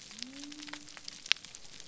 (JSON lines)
{"label": "biophony", "recorder": "SoundTrap 300"}